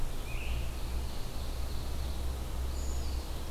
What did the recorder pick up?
Ovenbird, Scarlet Tanager, Brown Creeper